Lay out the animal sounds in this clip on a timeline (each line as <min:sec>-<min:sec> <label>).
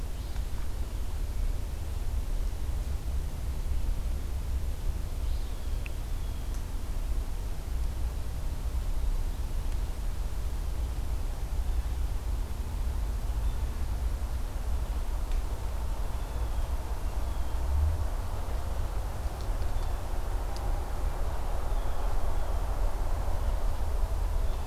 0:05.2-0:06.9 Blue Jay (Cyanocitta cristata)
0:15.9-0:17.7 Blue Jay (Cyanocitta cristata)
0:21.5-0:22.8 Blue Jay (Cyanocitta cristata)